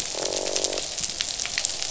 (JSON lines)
{"label": "biophony, croak", "recorder": "SoundTrap 500"}